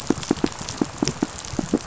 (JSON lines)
{"label": "biophony, pulse", "recorder": "SoundTrap 500"}